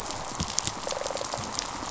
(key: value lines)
label: biophony, rattle response
recorder: SoundTrap 500